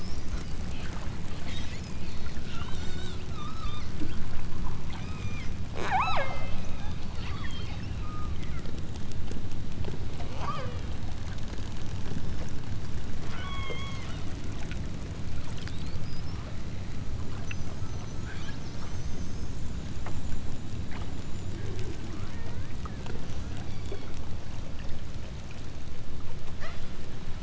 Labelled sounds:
2.5	3.9	killer whale, southern Alaska resident, 0.69 to 8.0 kHz
4.9	8.5	killer whale, southern Alaska resident, 0.32 to 8.0 kHz
10.2	11.0	killer whale, southern Alaska resident, 0.51 to 7.2 kHz
13.3	14.1	killer whale, southern Alaska resident, 0.83 to 8.0 kHz
23.5	24.2	killer whale, southern Alaska resident, 1.3 to 6.3 kHz
26.5	27.0	killer whale, southern Alaska resident, 1.5 to 8.0 kHz

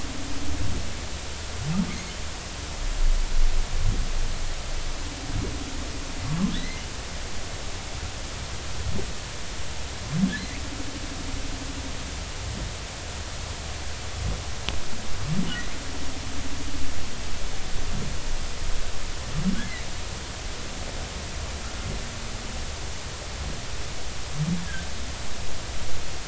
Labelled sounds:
1.9	2.1	humpback whale, 2.0 to 2.3 kHz
6.3	6.8	humpback whale, 0.93 to 2.1 kHz

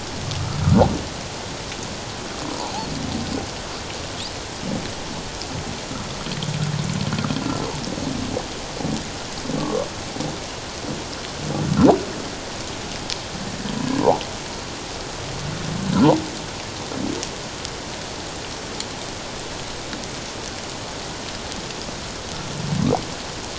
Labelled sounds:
2.5	2.7	humpback whale, 0.78 to 1.0 kHz
9.6	9.8	humpback whale, 1.0 to 1.2 kHz
14.0	14.2	humpback whale, 0.78 to 1.0 kHz

